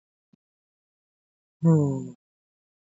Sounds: Sigh